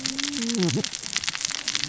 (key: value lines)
label: biophony, cascading saw
recorder: SoundTrap 600 or HydroMoth